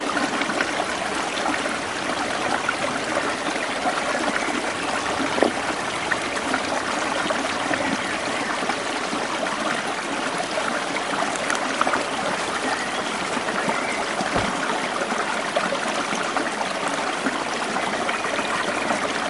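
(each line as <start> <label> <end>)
0.0 A stream of water continuously runs down a river. 19.3
5.2 Something cracks. 5.6
11.3 A cracking sound is heard nearby. 12.0
12.9 A bird sings in the distance. 15.4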